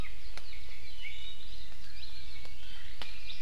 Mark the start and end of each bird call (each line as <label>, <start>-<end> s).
Warbling White-eye (Zosterops japonicus), 2.5-3.4 s